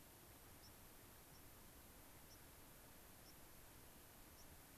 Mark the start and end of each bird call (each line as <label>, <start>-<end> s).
White-crowned Sparrow (Zonotrichia leucophrys), 0.6-0.8 s
White-crowned Sparrow (Zonotrichia leucophrys), 1.3-1.5 s
White-crowned Sparrow (Zonotrichia leucophrys), 2.3-2.4 s
White-crowned Sparrow (Zonotrichia leucophrys), 3.2-3.4 s
White-crowned Sparrow (Zonotrichia leucophrys), 4.3-4.5 s